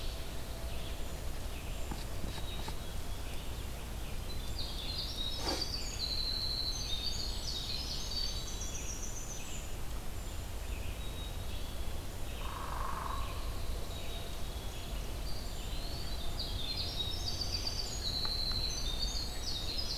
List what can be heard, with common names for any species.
Red-eyed Vireo, Black-capped Chickadee, Winter Wren, Ovenbird, Hairy Woodpecker, Eastern Wood-Pewee